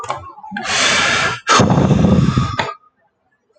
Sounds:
Sigh